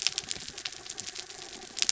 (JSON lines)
{"label": "anthrophony, mechanical", "recorder": "SoundTrap 300"}